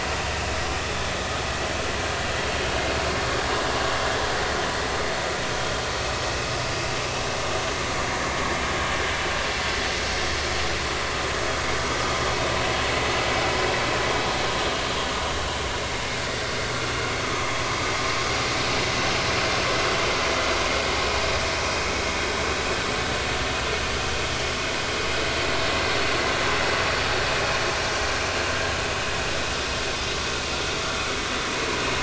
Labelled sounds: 17.2	17.5	vessel noise, 1.2 to 1.3 kHz
20.9	21.2	vessel noise, 5.2 to 5.4 kHz

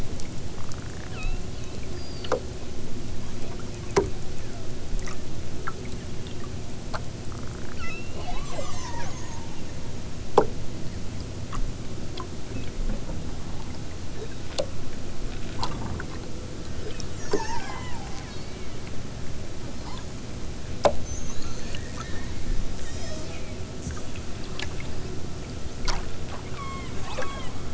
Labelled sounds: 1.0	1.4	killer whale, southern Alaska resident, 1.1 to 4.7 kHz
7.7	9.6	killer whale, southern Alaska resident, 0.46 to 8.0 kHz
12.5	12.8	killer whale, southern Alaska resident, 1.8 to 4.3 kHz
14.1	14.5	killer whale, southern Alaska resident, 1.1 to 4.4 kHz
17.1	18.8	killer whale, southern Alaska resident, 0.60 to 6.8 kHz
22.7	23.4	killer whale, southern Alaska resident, 2.0 to 8.0 kHz
26.5	27.6	killer whale, southern Alaska resident, 0.74 to 4.9 kHz

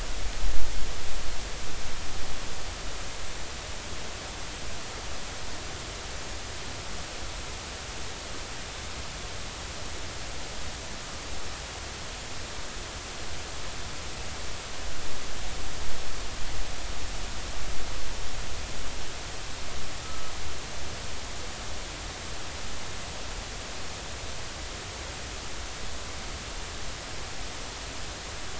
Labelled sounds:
20.0	20.3	humpback whale, 1.2 to 1.4 kHz

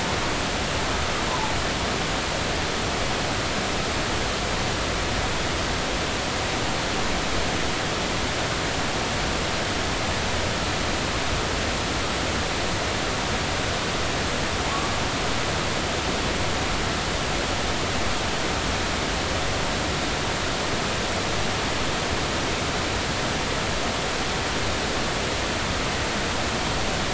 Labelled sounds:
1.3	1.5	humpback whale, 0.80 to 1.1 kHz

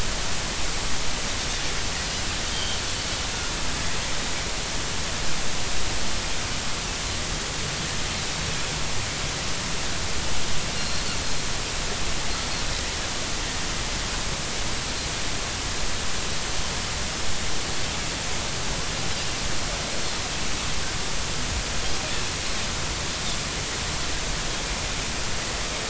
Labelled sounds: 2.5	2.8	Pacific white-sided dolphin, 2.9 to 3.3 kHz
10.8	11.0	Pacific white-sided dolphin, 4.1 to 4.3 kHz

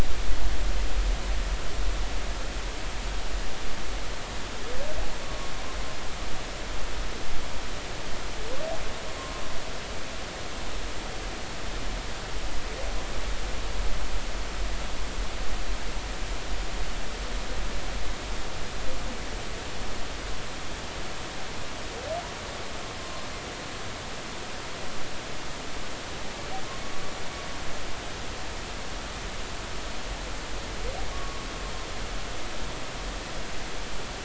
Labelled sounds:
5.2	5.5	humpback whale, 1.1 to 1.2 kHz
31.1	31.5	humpback whale, 1.0 to 1.2 kHz

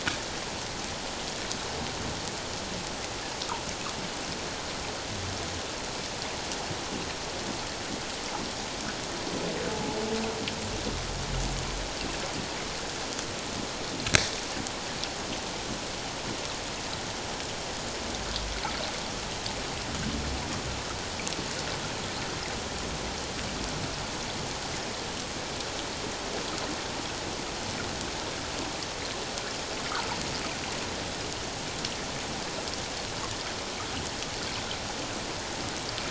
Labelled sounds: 9.7	10.0	humpback whale, 0.81 to 0.97 kHz

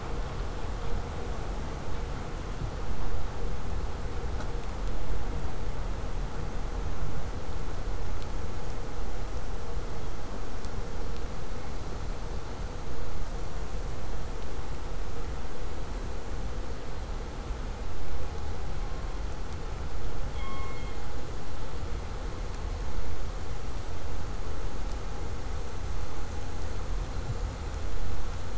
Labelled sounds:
20.3	21.1	killer whale, southern resident, K pod, call S16, 0.93 to 4.5 kHz

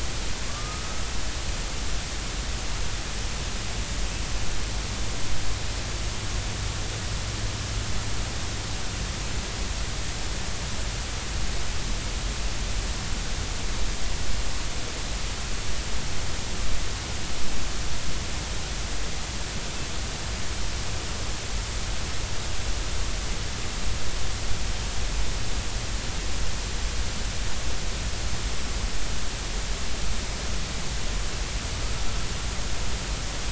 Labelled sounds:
0.4	0.9	killer whale, northern resident, 1.0 to 1.3 kHz

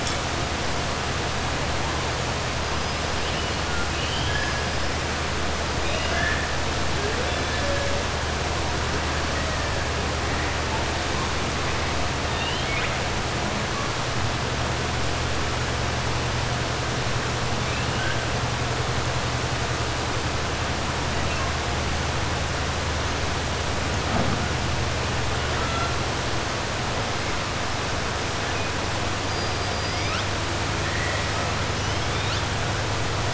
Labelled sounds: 3.7	4.5	killer whale, 1.4 to 5.0 kHz
5.8	6.5	killer whale, 0.68 to 3.8 kHz
12.2	13.0	killer whale, 1.5 to 4.2 kHz
25.5	25.9	killer whale, 0.68 to 4.1 kHz
29.2	30.3	killer whale, 1.3 to 6.0 kHz

